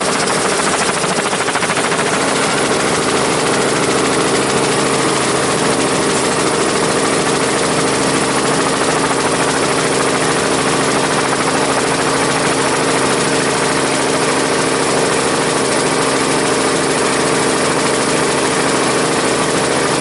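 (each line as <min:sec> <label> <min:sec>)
0:00.0 Engines running continuously. 0:20.0
0:00.0 The blades rotate with a static sound. 0:20.0
0:00.0 The constant sound of helicopter blades. 0:20.0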